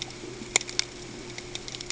{"label": "ambient", "recorder": "HydroMoth"}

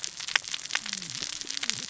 {"label": "biophony, cascading saw", "recorder": "SoundTrap 600 or HydroMoth"}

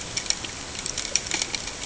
{"label": "ambient", "recorder": "HydroMoth"}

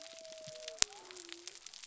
{"label": "biophony", "recorder": "SoundTrap 300"}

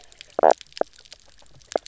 {"label": "biophony, knock croak", "recorder": "SoundTrap 300"}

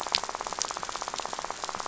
{"label": "biophony, rattle", "recorder": "SoundTrap 500"}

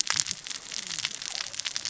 {"label": "biophony, cascading saw", "recorder": "SoundTrap 600 or HydroMoth"}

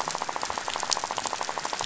{"label": "biophony, rattle", "recorder": "SoundTrap 500"}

